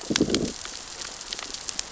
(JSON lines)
{"label": "biophony, growl", "recorder": "SoundTrap 600 or HydroMoth"}